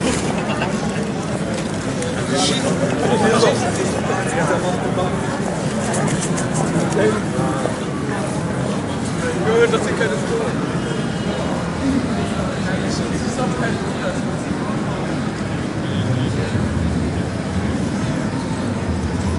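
People talking outdoors. 0:00.0 - 0:19.4

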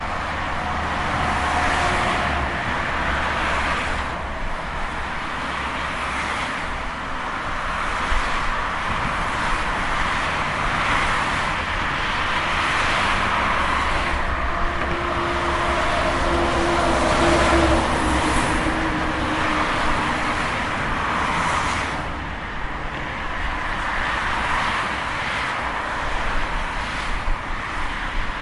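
Vehicles driving on an urban motorway. 0:00.0 - 0:28.4
A truck drives by on an urban motorway. 0:01.1 - 0:02.5
A car driving by on a motorway. 0:02.5 - 0:04.2
A truck drives by on an urban motorway. 0:05.6 - 0:06.8
A truck drives by on an urban motorway. 0:07.5 - 0:08.4
A truck drives by on an urban motorway. 0:10.6 - 0:13.4
A large truck is driving by on a motorway in an urban area. 0:15.9 - 0:18.7
A car driving by on a motorway. 0:21.0 - 0:22.0

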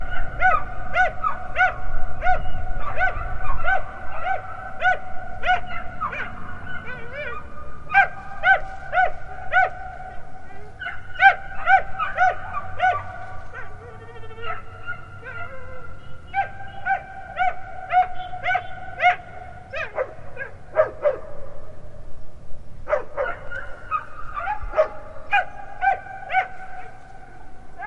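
Multiple dogs bark loudly outdoors in a steady pattern. 0:00.0 - 0:07.8
An engine of a vehicle slowly accelerates while passing by. 0:05.3 - 0:08.2
A dog barks loudly outdoors in a steady pattern. 0:07.9 - 0:09.7
Muffled sound of foliage as something passes through. 0:08.1 - 0:10.4
A dog barks loudly outdoors in a steady pattern. 0:10.7 - 0:13.0
A dog moans in the distance. 0:13.3 - 0:16.1
A vehicle honks repeatedly in the distance. 0:15.9 - 0:17.3
A dog barks loudly outdoors in a steady pattern. 0:16.2 - 0:19.4
A vehicle honks repeatedly in the distance. 0:18.0 - 0:18.9
A dog is whining in the distance. 0:19.7 - 0:20.7
A dog barks loudly outdoors in a steady pattern. 0:20.6 - 0:21.4
Birds singing repeatedly in the distance. 0:21.3 - 0:22.7
Multiple dogs bark loudly outdoors in a steady pattern. 0:22.8 - 0:27.0
Soft metallic sounds. 0:26.3 - 0:27.9

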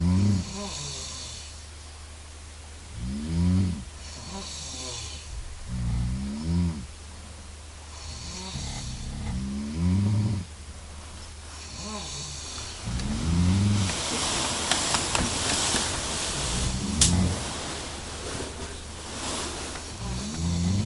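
Crickets chirping quietly and continuously in the distance. 0:00.0 - 0:20.9
Intense snoring repeating rhythmically. 0:00.0 - 0:20.9
Loud rustling of bed sheets. 0:13.0 - 0:20.9

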